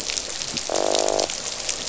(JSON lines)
{"label": "biophony, croak", "recorder": "SoundTrap 500"}